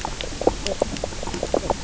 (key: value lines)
label: biophony, knock croak
recorder: SoundTrap 300